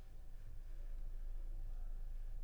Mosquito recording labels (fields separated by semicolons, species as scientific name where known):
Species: Culex pipiens complex; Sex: female; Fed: unfed; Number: one; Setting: cup